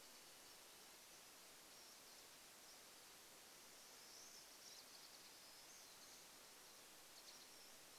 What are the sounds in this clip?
Varied Thrush song, Pine Siskin call, Golden-crowned Kinglet song